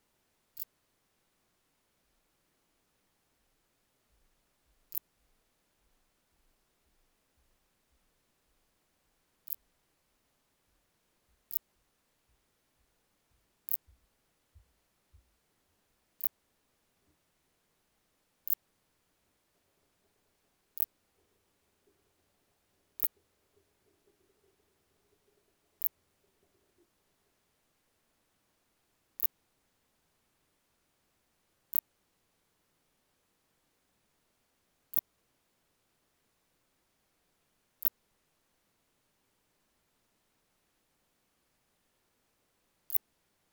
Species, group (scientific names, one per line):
Phaneroptera nana
Orthoptera